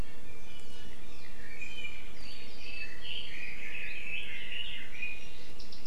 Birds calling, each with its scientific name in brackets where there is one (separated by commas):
Iiwi (Drepanis coccinea), Red-billed Leiothrix (Leiothrix lutea)